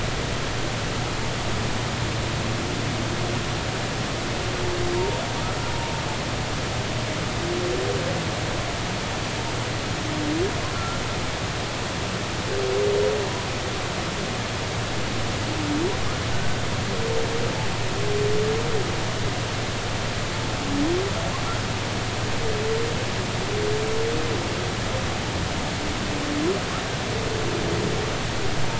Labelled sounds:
4.9	5.2	humpback whale, 0.90 to 0.99 kHz
10.7	11.0	humpback whale, 1.3 to 1.4 kHz

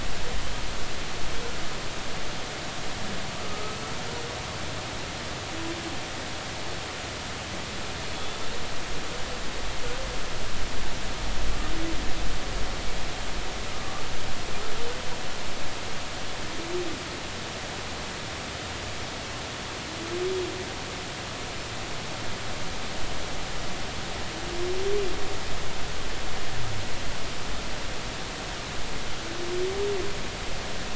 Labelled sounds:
3.4	3.8	humpback whale, 1.2 to 1.3 kHz
8.1	8.4	humpback whale, 3.3 to 3.6 kHz
13.7	14.0	humpback whale, 1.1 to 1.3 kHz

